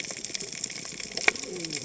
{"label": "biophony, cascading saw", "recorder": "HydroMoth"}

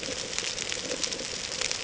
{"label": "ambient", "recorder": "HydroMoth"}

